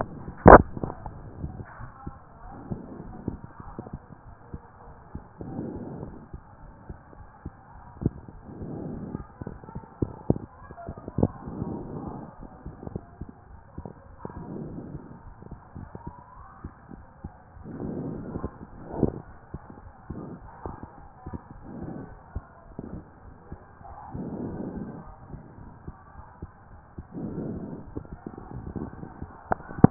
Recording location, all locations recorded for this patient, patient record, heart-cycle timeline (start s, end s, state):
aortic valve (AV)
aortic valve (AV)+pulmonary valve (PV)+tricuspid valve (TV)+mitral valve (MV)
#Age: Child
#Sex: Male
#Height: 136.0 cm
#Weight: 46.0 kg
#Pregnancy status: False
#Murmur: Absent
#Murmur locations: nan
#Most audible location: nan
#Systolic murmur timing: nan
#Systolic murmur shape: nan
#Systolic murmur grading: nan
#Systolic murmur pitch: nan
#Systolic murmur quality: nan
#Diastolic murmur timing: nan
#Diastolic murmur shape: nan
#Diastolic murmur grading: nan
#Diastolic murmur pitch: nan
#Diastolic murmur quality: nan
#Outcome: Normal
#Campaign: 2014 screening campaign
0.00	0.94	unannotated
0.94	1.01	diastole
1.01	1.10	S1
1.10	1.38	systole
1.38	1.54	S2
1.54	1.78	diastole
1.78	1.92	S1
1.92	2.06	systole
2.06	2.16	S2
2.16	2.40	diastole
2.40	2.54	S1
2.54	2.70	systole
2.70	2.82	S2
2.82	3.04	diastole
3.04	3.18	S1
3.18	3.26	systole
3.26	3.42	S2
3.42	3.66	diastole
3.66	3.76	S1
3.76	3.86	systole
3.86	4.00	S2
4.00	4.24	diastole
4.24	4.36	S1
4.36	4.50	systole
4.50	4.60	S2
4.60	4.86	diastole
4.86	4.94	S1
4.94	5.10	systole
5.10	5.24	S2
5.24	5.46	diastole
5.46	5.64	S1
5.64	5.70	systole
5.70	5.82	S2
5.82	6.01	diastole
6.01	6.10	S1
6.10	6.30	systole
6.30	6.40	S2
6.40	6.62	diastole
6.62	6.74	S1
6.74	6.86	systole
6.86	6.96	S2
6.96	7.18	diastole
7.18	7.28	S1
7.28	7.42	systole
7.42	7.52	S2
7.52	7.74	diastole
7.74	7.81	S1
7.81	29.90	unannotated